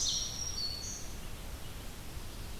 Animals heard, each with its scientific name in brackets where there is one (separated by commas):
Red-eyed Vireo (Vireo olivaceus), Black-throated Green Warbler (Setophaga virens)